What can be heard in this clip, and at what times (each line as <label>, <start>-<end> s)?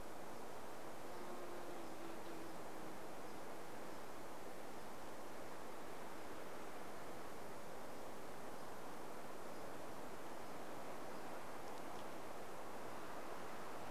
insect buzz, 0-4 s
unidentified bird chip note, 0-4 s